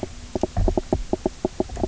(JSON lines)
{"label": "biophony, knock croak", "recorder": "SoundTrap 300"}